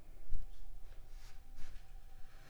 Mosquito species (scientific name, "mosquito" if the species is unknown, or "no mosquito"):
Anopheles arabiensis